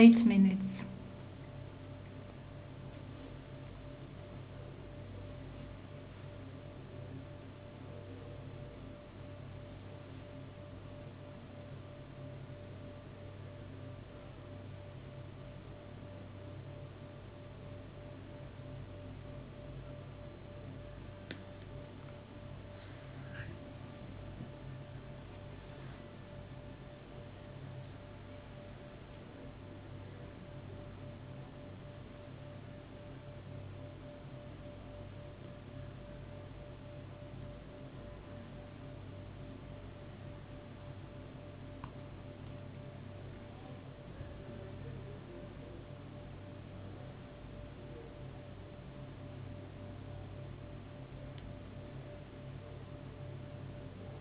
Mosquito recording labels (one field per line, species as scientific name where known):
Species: no mosquito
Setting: insect culture